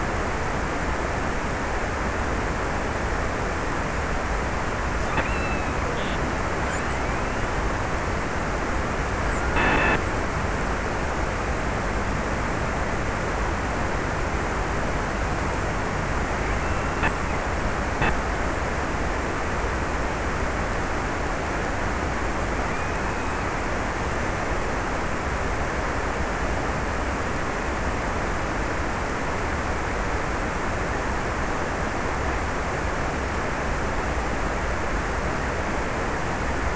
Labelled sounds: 4.9	5.9	killer whale, offshore, 0.71 to 2.9 kHz
22.3	23.8	killer whale, offshore, 1.2 to 2.8 kHz

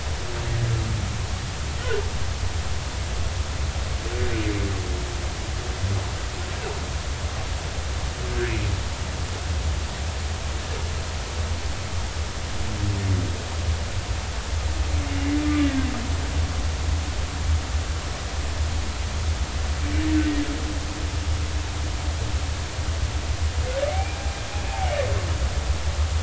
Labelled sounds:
15.6	15.9	humpback whale, 1.5 to 1.7 kHz
23.9	24.2	humpback whale, 2.1 to 2.5 kHz

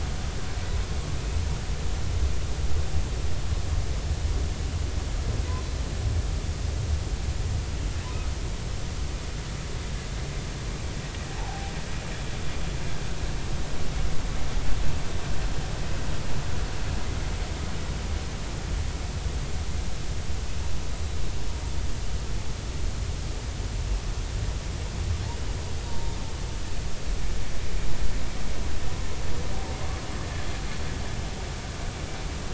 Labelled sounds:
11.4	11.7	humpback whale, 0.80 to 0.99 kHz
25.9	26.2	humpback whale, 0.86 to 0.99 kHz

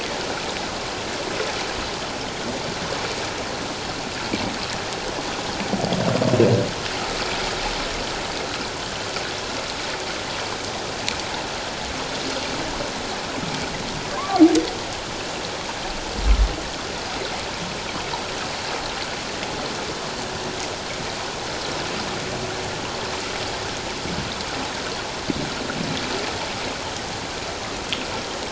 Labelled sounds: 14.2	14.4	humpback whale, 1.0 to 1.2 kHz

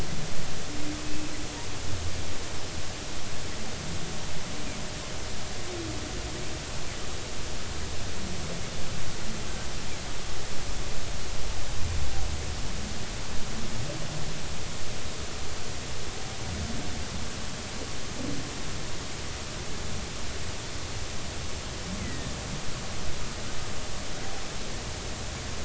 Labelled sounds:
1.1	1.3	humpback whale, 2.5 to 2.7 kHz
22.0	22.3	humpback whale, 1.8 to 2.2 kHz

